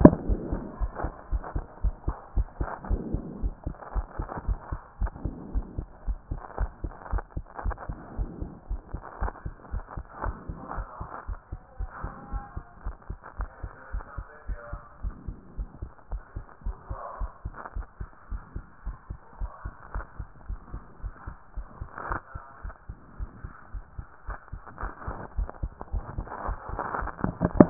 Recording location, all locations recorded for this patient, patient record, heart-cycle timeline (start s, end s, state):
pulmonary valve (PV)
aortic valve (AV)+pulmonary valve (PV)+tricuspid valve (TV)+mitral valve (MV)
#Age: Child
#Sex: Male
#Height: 134.0 cm
#Weight: 39.9 kg
#Pregnancy status: False
#Murmur: Absent
#Murmur locations: nan
#Most audible location: nan
#Systolic murmur timing: nan
#Systolic murmur shape: nan
#Systolic murmur grading: nan
#Systolic murmur pitch: nan
#Systolic murmur quality: nan
#Diastolic murmur timing: nan
#Diastolic murmur shape: nan
#Diastolic murmur grading: nan
#Diastolic murmur pitch: nan
#Diastolic murmur quality: nan
#Outcome: Normal
#Campaign: 2014 screening campaign
0.00	0.80	unannotated
0.80	0.92	S1
0.92	1.02	systole
1.02	1.12	S2
1.12	1.30	diastole
1.30	1.42	S1
1.42	1.54	systole
1.54	1.64	S2
1.64	1.82	diastole
1.82	1.96	S1
1.96	2.06	systole
2.06	2.16	S2
2.16	2.36	diastole
2.36	2.48	S1
2.48	2.60	systole
2.60	2.68	S2
2.68	2.88	diastole
2.88	3.02	S1
3.02	3.12	systole
3.12	3.22	S2
3.22	3.42	diastole
3.42	3.54	S1
3.54	3.66	systole
3.66	3.74	S2
3.74	3.94	diastole
3.94	4.06	S1
4.06	4.18	systole
4.18	4.28	S2
4.28	4.46	diastole
4.46	4.58	S1
4.58	4.70	systole
4.70	4.80	S2
4.80	5.00	diastole
5.00	5.12	S1
5.12	5.24	systole
5.24	5.34	S2
5.34	5.54	diastole
5.54	5.66	S1
5.66	5.76	systole
5.76	5.86	S2
5.86	6.06	diastole
6.06	6.18	S1
6.18	6.30	systole
6.30	6.40	S2
6.40	6.58	diastole
6.58	6.70	S1
6.70	6.82	systole
6.82	6.92	S2
6.92	7.12	diastole
7.12	7.24	S1
7.24	7.36	systole
7.36	7.44	S2
7.44	7.64	diastole
7.64	7.76	S1
7.76	7.88	systole
7.88	7.98	S2
7.98	8.18	diastole
8.18	8.30	S1
8.30	8.40	systole
8.40	8.50	S2
8.50	8.70	diastole
8.70	8.80	S1
8.80	8.92	systole
8.92	9.02	S2
9.02	9.20	diastole
9.20	9.32	S1
9.32	9.44	systole
9.44	9.54	S2
9.54	9.72	diastole
9.72	9.84	S1
9.84	9.96	systole
9.96	10.04	S2
10.04	10.24	diastole
10.24	10.36	S1
10.36	10.48	systole
10.48	10.58	S2
10.58	10.76	diastole
10.76	10.88	S1
10.88	11.00	systole
11.00	11.08	S2
11.08	11.28	diastole
11.28	11.38	S1
11.38	11.52	systole
11.52	11.60	S2
11.60	11.78	diastole
11.78	11.90	S1
11.90	12.02	systole
12.02	12.12	S2
12.12	12.32	diastole
12.32	12.44	S1
12.44	12.56	systole
12.56	12.64	S2
12.64	12.84	diastole
12.84	12.96	S1
12.96	13.08	systole
13.08	13.18	S2
13.18	13.38	diastole
13.38	13.50	S1
13.50	13.62	systole
13.62	13.72	S2
13.72	13.92	diastole
13.92	14.04	S1
14.04	14.16	systole
14.16	14.26	S2
14.26	14.48	diastole
14.48	14.58	S1
14.58	14.72	systole
14.72	14.80	S2
14.80	15.02	diastole
15.02	15.14	S1
15.14	15.28	systole
15.28	15.36	S2
15.36	15.58	diastole
15.58	15.68	S1
15.68	15.82	systole
15.82	15.90	S2
15.90	16.12	diastole
16.12	16.22	S1
16.22	16.36	systole
16.36	16.44	S2
16.44	16.64	diastole
16.64	16.76	S1
16.76	16.90	systole
16.90	16.98	S2
16.98	17.20	diastole
17.20	17.30	S1
17.30	17.44	systole
17.44	17.54	S2
17.54	17.76	diastole
17.76	17.86	S1
17.86	18.00	systole
18.00	18.08	S2
18.08	18.30	diastole
18.30	18.42	S1
18.42	18.54	systole
18.54	18.64	S2
18.64	18.86	diastole
18.86	18.96	S1
18.96	19.10	systole
19.10	19.18	S2
19.18	19.40	diastole
19.40	19.50	S1
19.50	19.64	systole
19.64	19.74	S2
19.74	19.94	diastole
19.94	20.06	S1
20.06	20.18	systole
20.18	20.28	S2
20.28	20.48	diastole
20.48	20.60	S1
20.60	20.72	systole
20.72	20.82	S2
20.82	21.02	diastole
21.02	21.14	S1
21.14	21.26	systole
21.26	21.36	S2
21.36	21.56	diastole
21.56	21.66	S1
21.66	21.80	systole
21.80	21.90	S2
21.90	22.08	diastole
22.08	22.20	S1
22.20	22.34	systole
22.34	22.44	S2
22.44	22.64	diastole
22.64	22.74	S1
22.74	22.88	systole
22.88	22.98	S2
22.98	23.18	diastole
23.18	23.30	S1
23.30	23.44	systole
23.44	23.52	S2
23.52	23.74	diastole
23.74	23.84	S1
23.84	23.98	systole
23.98	24.06	S2
24.06	24.28	diastole
24.28	24.38	S1
24.38	24.52	systole
24.52	24.62	S2
24.62	24.82	diastole
24.82	24.92	S1
24.92	25.06	systole
25.06	25.16	S2
25.16	25.36	diastole
25.36	25.48	S1
25.48	25.62	systole
25.62	25.72	S2
25.72	25.92	diastole
25.92	26.04	S1
26.04	26.16	systole
26.16	26.26	S2
26.26	26.46	diastole
26.46	27.70	unannotated